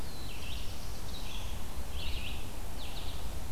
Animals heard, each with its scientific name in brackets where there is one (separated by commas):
Black-throated Blue Warbler (Setophaga caerulescens), Red-eyed Vireo (Vireo olivaceus)